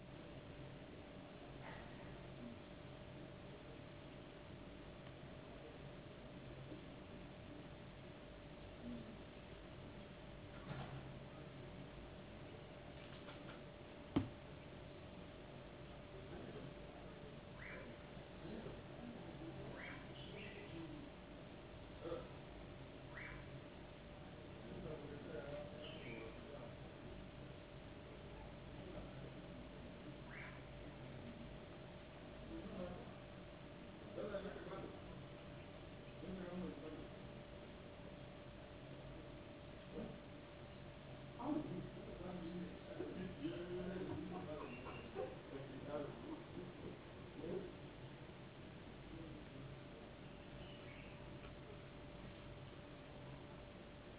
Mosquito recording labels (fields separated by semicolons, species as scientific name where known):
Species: no mosquito; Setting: insect culture